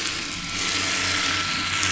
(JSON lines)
{"label": "anthrophony, boat engine", "recorder": "SoundTrap 500"}